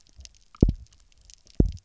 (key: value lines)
label: biophony, double pulse
recorder: SoundTrap 300